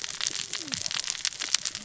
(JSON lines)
{"label": "biophony, cascading saw", "recorder": "SoundTrap 600 or HydroMoth"}